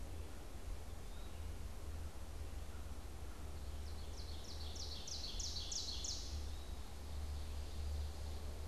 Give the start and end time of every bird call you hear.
[0.00, 3.70] American Crow (Corvus brachyrhynchos)
[0.90, 1.40] Eastern Wood-Pewee (Contopus virens)
[3.50, 6.50] Ovenbird (Seiurus aurocapilla)
[6.30, 6.90] Eastern Wood-Pewee (Contopus virens)
[6.80, 8.60] Ovenbird (Seiurus aurocapilla)

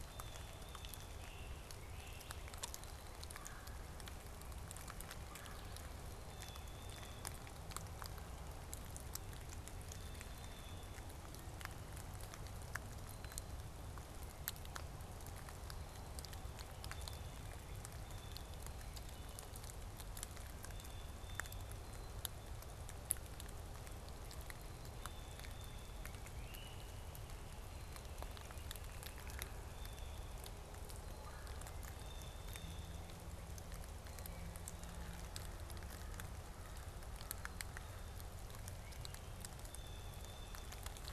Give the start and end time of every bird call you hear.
[0.00, 8.03] Blue Jay (Cyanocitta cristata)
[1.23, 2.63] Great Crested Flycatcher (Myiarchus crinitus)
[3.13, 5.93] Red-bellied Woodpecker (Melanerpes carolinus)
[9.73, 22.83] Blue Jay (Cyanocitta cristata)
[24.83, 26.13] Blue Jay (Cyanocitta cristata)
[26.33, 26.93] Great Crested Flycatcher (Myiarchus crinitus)
[31.03, 31.73] Red-bellied Woodpecker (Melanerpes carolinus)
[31.83, 33.13] Blue Jay (Cyanocitta cristata)
[39.53, 41.03] Blue Jay (Cyanocitta cristata)

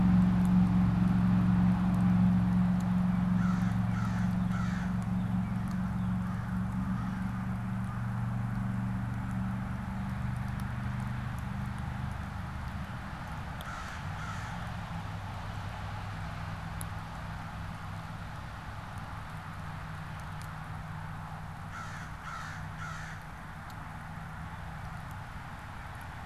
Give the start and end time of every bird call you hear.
[3.12, 5.12] American Crow (Corvus brachyrhynchos)
[3.52, 6.32] Northern Cardinal (Cardinalis cardinalis)
[6.72, 7.42] American Crow (Corvus brachyrhynchos)
[13.52, 14.62] American Crow (Corvus brachyrhynchos)
[21.62, 23.32] American Crow (Corvus brachyrhynchos)

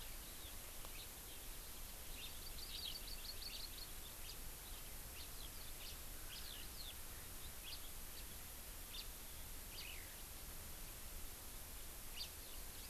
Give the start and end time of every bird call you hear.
[0.90, 1.10] House Finch (Haemorhous mexicanus)
[2.10, 2.40] House Finch (Haemorhous mexicanus)
[2.50, 3.90] Hawaii Amakihi (Chlorodrepanis virens)
[4.20, 4.40] House Finch (Haemorhous mexicanus)
[5.10, 5.30] House Finch (Haemorhous mexicanus)
[5.80, 6.00] House Finch (Haemorhous mexicanus)
[6.30, 6.60] House Finch (Haemorhous mexicanus)
[7.70, 7.80] House Finch (Haemorhous mexicanus)
[8.90, 9.10] House Finch (Haemorhous mexicanus)
[9.70, 9.90] House Finch (Haemorhous mexicanus)
[12.10, 12.30] House Finch (Haemorhous mexicanus)

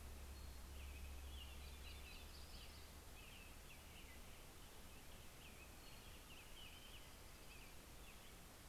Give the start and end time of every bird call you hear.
[0.00, 0.80] Townsend's Solitaire (Myadestes townsendi)
[0.70, 8.69] American Robin (Turdus migratorius)
[1.30, 3.10] Yellow-rumped Warbler (Setophaga coronata)
[5.50, 6.20] Townsend's Solitaire (Myadestes townsendi)
[6.30, 8.40] Dark-eyed Junco (Junco hyemalis)

